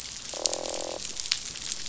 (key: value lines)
label: biophony, croak
recorder: SoundTrap 500